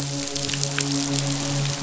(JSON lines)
{"label": "biophony, midshipman", "recorder": "SoundTrap 500"}